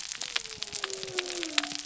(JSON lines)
{"label": "biophony", "recorder": "SoundTrap 300"}